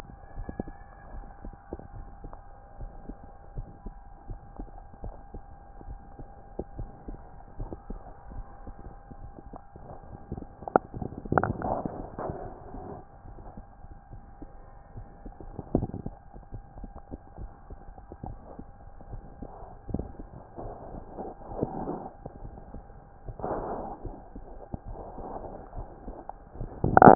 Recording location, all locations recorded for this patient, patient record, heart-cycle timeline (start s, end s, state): tricuspid valve (TV)
aortic valve (AV)+pulmonary valve (PV)+tricuspid valve (TV)
#Age: Child
#Sex: Female
#Height: 145.0 cm
#Weight: 39.7 kg
#Pregnancy status: False
#Murmur: Present
#Murmur locations: aortic valve (AV)+pulmonary valve (PV)
#Most audible location: pulmonary valve (PV)
#Systolic murmur timing: Early-systolic
#Systolic murmur shape: Decrescendo
#Systolic murmur grading: I/VI
#Systolic murmur pitch: Medium
#Systolic murmur quality: Harsh
#Diastolic murmur timing: nan
#Diastolic murmur shape: nan
#Diastolic murmur grading: nan
#Diastolic murmur pitch: nan
#Diastolic murmur quality: nan
#Outcome: Abnormal
#Campaign: 2015 screening campaign
0.00	0.66	unannotated
0.66	1.12	diastole
1.12	1.28	S1
1.28	1.40	systole
1.40	1.54	S2
1.54	1.92	diastole
1.92	2.07	S1
2.07	2.19	systole
2.19	2.34	S2
2.34	2.78	diastole
2.78	2.90	S1
2.90	3.04	systole
3.04	3.16	S2
3.16	3.54	diastole
3.54	3.66	S1
3.66	3.82	systole
3.82	3.94	S2
3.94	4.28	diastole
4.28	4.42	S1
4.42	4.56	systole
4.56	4.67	S2
4.67	5.00	diastole
5.00	5.14	S1
5.14	5.30	systole
5.30	5.48	S2
5.48	5.86	diastole
5.86	6.02	S1
6.02	6.14	systole
6.14	6.26	S2
6.26	6.76	diastole
6.76	6.90	S1
6.90	7.06	systole
7.06	7.19	S2
7.19	7.56	diastole
7.56	7.70	S1
7.70	7.86	systole
7.86	7.97	S2
7.97	8.28	diastole
8.28	8.46	S1
8.46	8.60	systole
8.60	8.74	S2
8.74	9.20	diastole
9.20	9.32	S1
9.32	9.50	systole
9.50	9.59	S2
9.59	10.05	diastole
10.05	10.18	S1
10.18	10.30	systole
10.30	10.42	S2
10.42	10.75	diastole
10.75	27.15	unannotated